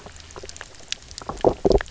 {"label": "biophony, knock croak", "recorder": "SoundTrap 300"}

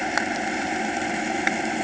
{"label": "anthrophony, boat engine", "recorder": "HydroMoth"}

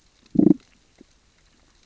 {"label": "biophony, growl", "recorder": "SoundTrap 600 or HydroMoth"}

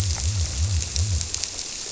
{"label": "biophony", "recorder": "SoundTrap 300"}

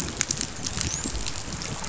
{"label": "biophony, dolphin", "recorder": "SoundTrap 500"}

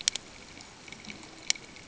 {"label": "ambient", "recorder": "HydroMoth"}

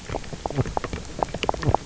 {"label": "biophony, knock croak", "recorder": "SoundTrap 300"}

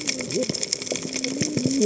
{"label": "biophony, cascading saw", "recorder": "HydroMoth"}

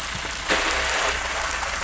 {"label": "anthrophony, boat engine", "recorder": "SoundTrap 500"}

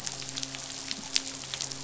{"label": "biophony, midshipman", "recorder": "SoundTrap 500"}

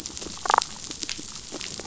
{"label": "biophony, damselfish", "recorder": "SoundTrap 500"}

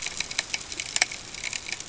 {"label": "ambient", "recorder": "HydroMoth"}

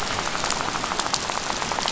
{"label": "biophony, rattle", "recorder": "SoundTrap 500"}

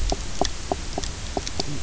{"label": "biophony, knock croak", "recorder": "SoundTrap 300"}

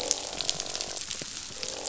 {"label": "biophony, croak", "recorder": "SoundTrap 500"}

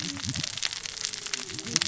{"label": "biophony, cascading saw", "recorder": "SoundTrap 600 or HydroMoth"}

